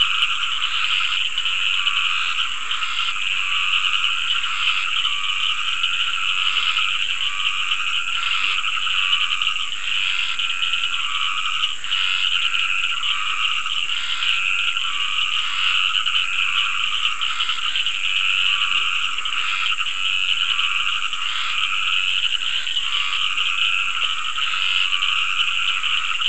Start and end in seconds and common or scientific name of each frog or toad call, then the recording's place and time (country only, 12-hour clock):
0.0	26.2	Dendropsophus nahdereri
0.0	26.2	Scinax perereca
0.0	26.2	Cochran's lime tree frog
8.4	8.7	Leptodactylus latrans
18.6	18.9	Leptodactylus latrans
Brazil, 7:30pm